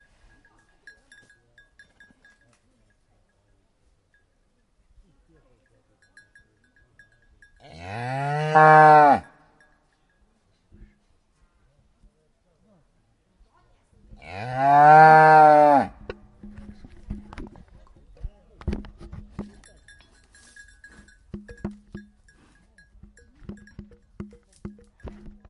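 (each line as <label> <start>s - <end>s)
Cowbells clanking irregularly. 0.0s - 7.6s
A cow moos loudly, gradually increasing in volume. 7.7s - 9.3s
Cowbells clanking irregularly. 9.3s - 10.4s
A cow moos loudly, gradually increasing in volume. 14.2s - 16.0s
Soft thumping noises from a microphone being touched repeatedly. 16.0s - 19.4s
Cowbells clanking irregularly. 19.4s - 25.5s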